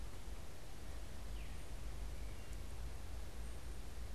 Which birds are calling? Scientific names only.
Catharus fuscescens